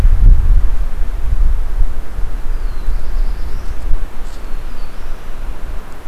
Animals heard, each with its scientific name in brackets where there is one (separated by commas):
Black-throated Blue Warbler (Setophaga caerulescens)